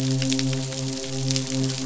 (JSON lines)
{"label": "biophony, midshipman", "recorder": "SoundTrap 500"}